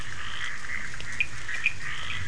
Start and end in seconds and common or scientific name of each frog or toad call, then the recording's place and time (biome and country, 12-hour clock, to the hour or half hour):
0.0	2.2	Bischoff's tree frog
0.0	2.2	Scinax perereca
1.1	2.2	Cochran's lime tree frog
Atlantic Forest, Brazil, 2am